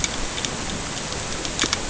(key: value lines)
label: ambient
recorder: HydroMoth